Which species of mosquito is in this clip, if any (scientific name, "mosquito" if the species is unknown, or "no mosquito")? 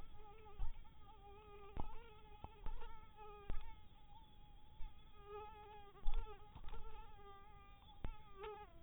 mosquito